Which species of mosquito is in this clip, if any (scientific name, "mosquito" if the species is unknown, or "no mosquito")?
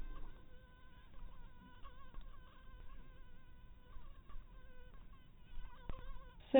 mosquito